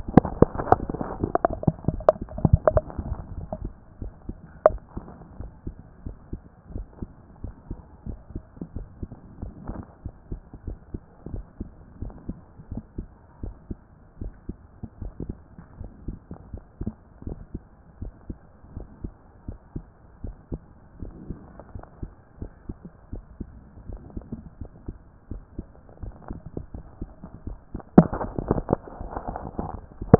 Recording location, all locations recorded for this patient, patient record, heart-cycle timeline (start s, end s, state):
mitral valve (MV)
aortic valve (AV)+pulmonary valve (PV)+tricuspid valve (TV)+mitral valve (MV)
#Age: Child
#Sex: Female
#Height: 152.0 cm
#Weight: 41.0 kg
#Pregnancy status: False
#Murmur: Absent
#Murmur locations: nan
#Most audible location: nan
#Systolic murmur timing: nan
#Systolic murmur shape: nan
#Systolic murmur grading: nan
#Systolic murmur pitch: nan
#Systolic murmur quality: nan
#Diastolic murmur timing: nan
#Diastolic murmur shape: nan
#Diastolic murmur grading: nan
#Diastolic murmur pitch: nan
#Diastolic murmur quality: nan
#Outcome: Abnormal
#Campaign: 2014 screening campaign
0.00	4.82	unannotated
4.82	4.96	systole
4.96	5.06	S2
5.06	5.38	diastole
5.38	5.52	S1
5.52	5.66	systole
5.66	5.76	S2
5.76	6.04	diastole
6.04	6.16	S1
6.16	6.32	systole
6.32	6.42	S2
6.42	6.70	diastole
6.70	6.86	S1
6.86	6.98	systole
6.98	7.10	S2
7.10	7.42	diastole
7.42	7.54	S1
7.54	7.70	systole
7.70	7.80	S2
7.80	8.08	diastole
8.08	8.20	S1
8.20	8.34	systole
8.34	8.42	S2
8.42	8.74	diastole
8.74	8.88	S1
8.88	8.98	systole
8.98	9.08	S2
9.08	9.40	diastole
9.40	9.54	S1
9.54	9.68	systole
9.68	9.84	S2
9.84	10.14	diastole
10.14	10.20	S1
10.20	10.32	systole
10.32	10.42	S2
10.42	10.70	diastole
10.70	10.80	S1
10.80	10.90	systole
10.90	11.00	S2
11.00	11.30	diastole
11.30	11.46	S1
11.46	11.60	systole
11.60	11.70	S2
11.70	12.00	diastole
12.00	12.14	S1
12.14	12.26	systole
12.26	12.36	S2
12.36	12.70	diastole
12.70	12.84	S1
12.84	12.98	systole
12.98	13.08	S2
13.08	13.42	diastole
13.42	13.56	S1
13.56	13.70	systole
13.70	13.80	S2
13.80	14.20	diastole
14.20	14.34	S1
14.34	14.48	systole
14.48	14.56	S2
14.56	15.00	diastole
15.00	15.12	S1
15.12	15.26	systole
15.26	15.38	S2
15.38	15.78	diastole
15.78	15.90	S1
15.90	16.04	systole
16.04	16.18	S2
16.18	16.52	diastole
16.52	16.62	S1
16.62	16.80	systole
16.80	16.94	S2
16.94	17.26	diastole
17.26	17.40	S1
17.40	17.54	systole
17.54	17.64	S2
17.64	17.98	diastole
17.98	18.12	S1
18.12	18.26	systole
18.26	18.36	S2
18.36	18.74	diastole
18.74	18.88	S1
18.88	19.04	systole
19.04	19.14	S2
19.14	19.48	diastole
19.48	19.58	S1
19.58	19.76	systole
19.76	19.86	S2
19.86	20.24	diastole
20.24	20.36	S1
20.36	20.52	systole
20.52	20.60	S2
20.60	21.00	diastole
21.00	21.14	S1
21.14	21.28	systole
21.28	21.38	S2
21.38	21.76	diastole
21.76	21.84	S1
21.84	21.98	systole
21.98	22.10	S2
22.10	22.42	diastole
22.42	22.52	S1
22.52	22.68	systole
22.68	22.76	S2
22.76	23.12	diastole
23.12	23.24	S1
23.24	23.36	systole
23.36	23.50	S2
23.50	23.88	diastole
23.88	24.02	S1
24.02	24.14	systole
24.14	24.28	S2
24.28	24.60	diastole
24.60	24.70	S1
24.70	24.84	systole
24.84	24.96	S2
24.96	25.32	diastole
25.32	25.42	S1
25.42	25.54	systole
25.54	25.66	S2
25.66	26.02	diastole
26.02	26.14	S1
26.14	26.28	systole
26.28	26.40	S2
26.40	26.74	diastole
26.74	26.86	S1
26.86	27.00	systole
27.00	27.12	S2
27.12	27.44	diastole
27.44	27.58	S1
27.58	27.74	systole
27.74	27.84	S2
27.84	27.87	diastole
27.87	30.19	unannotated